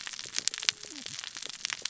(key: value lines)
label: biophony, cascading saw
recorder: SoundTrap 600 or HydroMoth